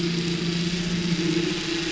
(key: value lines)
label: anthrophony, boat engine
recorder: SoundTrap 500